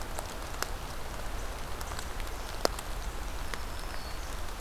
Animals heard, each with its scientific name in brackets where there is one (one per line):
Black-throated Green Warbler (Setophaga virens)